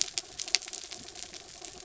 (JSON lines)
{"label": "anthrophony, mechanical", "recorder": "SoundTrap 300"}